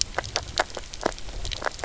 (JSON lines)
{"label": "biophony, grazing", "recorder": "SoundTrap 300"}